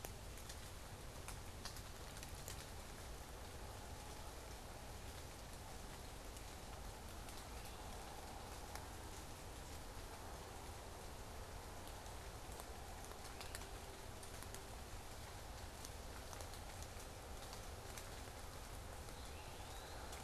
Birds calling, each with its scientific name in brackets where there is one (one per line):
Great Crested Flycatcher (Myiarchus crinitus)
Eastern Wood-Pewee (Contopus virens)